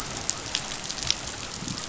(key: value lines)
label: biophony
recorder: SoundTrap 500